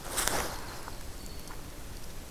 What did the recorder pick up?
Winter Wren